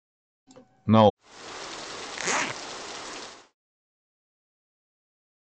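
At 0.88 seconds, someone says "No." Then at 1.16 seconds, quiet rain fades in and can be heard, fading out at 3.56 seconds. Meanwhile, at 2.15 seconds, the sound of a zipper is heard.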